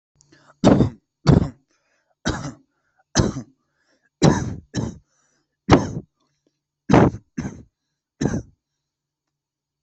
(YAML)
expert_labels:
- quality: good
  cough_type: dry
  dyspnea: false
  wheezing: false
  stridor: false
  choking: false
  congestion: false
  nothing: true
  diagnosis: upper respiratory tract infection
  severity: mild
age: 20
gender: male
respiratory_condition: true
fever_muscle_pain: true
status: COVID-19